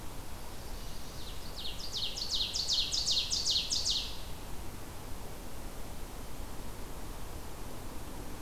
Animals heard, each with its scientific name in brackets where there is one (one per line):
Ovenbird (Seiurus aurocapilla)
Chestnut-sided Warbler (Setophaga pensylvanica)